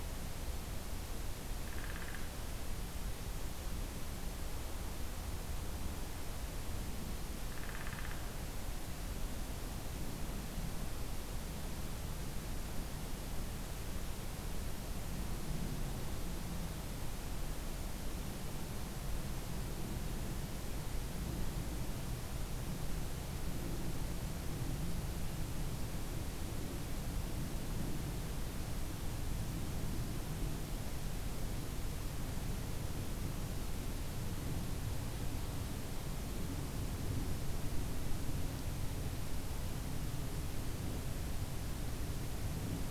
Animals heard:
Downy Woodpecker (Dryobates pubescens)

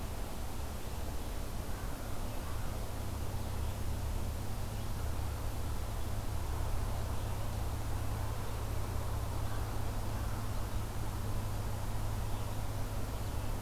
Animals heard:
Red-eyed Vireo (Vireo olivaceus)

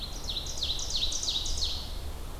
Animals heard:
Ovenbird (Seiurus aurocapilla)

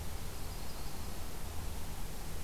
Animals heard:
Yellow-rumped Warbler (Setophaga coronata)

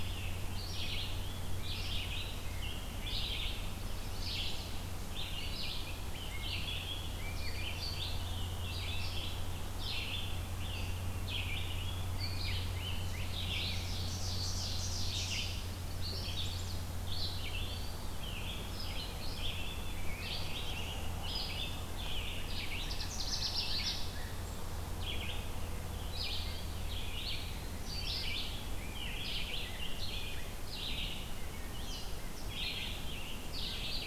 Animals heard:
Wood Thrush (Hylocichla mustelina)
Rose-breasted Grosbeak (Pheucticus ludovicianus)
Ovenbird (Seiurus aurocapilla)
Canada Warbler (Cardellina canadensis)
Eastern Wood-Pewee (Contopus virens)
Chestnut-sided Warbler (Setophaga pensylvanica)
Red-eyed Vireo (Vireo olivaceus)

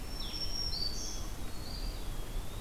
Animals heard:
Black-throated Green Warbler (Setophaga virens)
Eastern Wood-Pewee (Contopus virens)
Red-eyed Vireo (Vireo olivaceus)

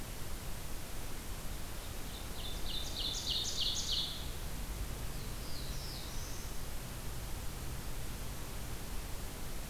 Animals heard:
Ovenbird (Seiurus aurocapilla)
Black-throated Blue Warbler (Setophaga caerulescens)

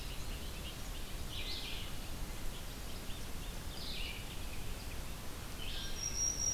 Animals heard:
Black-throated Green Warbler (Setophaga virens)
Bobolink (Dolichonyx oryzivorus)
Red-eyed Vireo (Vireo olivaceus)

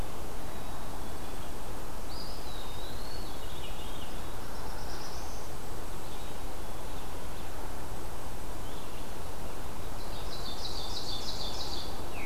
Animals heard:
Veery (Catharus fuscescens)
Eastern Wood-Pewee (Contopus virens)
Red-eyed Vireo (Vireo olivaceus)
Black-capped Chickadee (Poecile atricapillus)
Ovenbird (Seiurus aurocapilla)
Black-throated Blue Warbler (Setophaga caerulescens)
Blackpoll Warbler (Setophaga striata)

